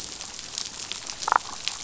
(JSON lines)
{"label": "biophony, damselfish", "recorder": "SoundTrap 500"}